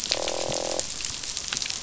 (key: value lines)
label: biophony, croak
recorder: SoundTrap 500